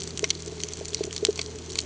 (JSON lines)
{"label": "ambient", "recorder": "HydroMoth"}